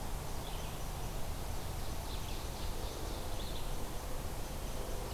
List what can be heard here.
Red-eyed Vireo, Ovenbird